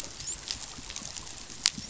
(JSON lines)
{"label": "biophony, dolphin", "recorder": "SoundTrap 500"}